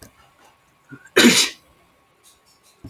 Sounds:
Sneeze